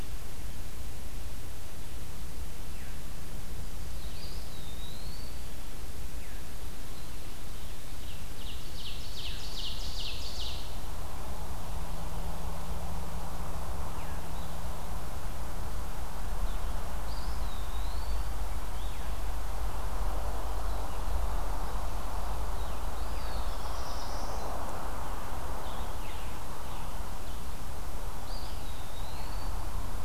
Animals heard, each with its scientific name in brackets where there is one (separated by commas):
Scarlet Tanager (Piranga olivacea), Eastern Wood-Pewee (Contopus virens), Veery (Catharus fuscescens), Black-throated Blue Warbler (Setophaga caerulescens), Ovenbird (Seiurus aurocapilla), Blue-headed Vireo (Vireo solitarius)